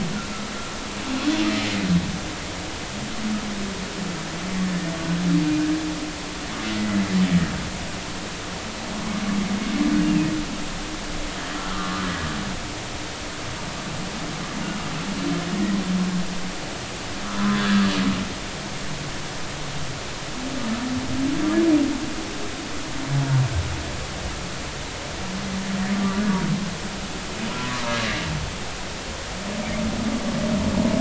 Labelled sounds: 0.4	0.7	humpback whale, 1.4 to 1.6 kHz
10.0	10.3	humpback whale, 2.4 to 2.8 kHz
11.6	12.0	humpback whale, 1.1 to 1.5 kHz
17.4	17.9	humpback whale, 0.99 to 1.8 kHz
25.9	26.2	humpback whale, 1.1 to 1.2 kHz

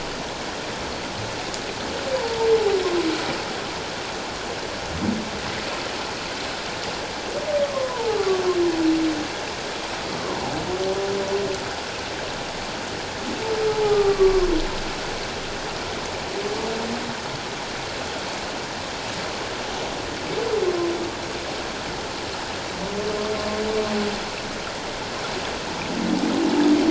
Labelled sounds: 7.7	8.4	humpback whale, 0.81 to 1.3 kHz
10.1	10.5	humpback whale, 0.78 to 1.2 kHz
13.7	14.5	humpback whale, 0.78 to 1.3 kHz

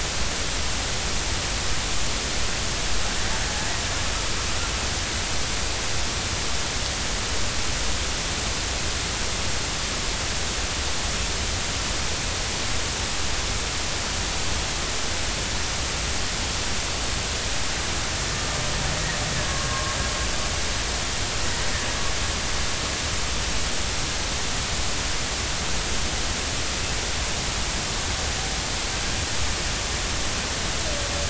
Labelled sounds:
19.5	20.0	killer whale, Bigg's (transient), 1.0 to 1.2 kHz

